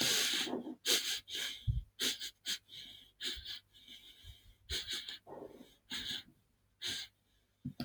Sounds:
Sniff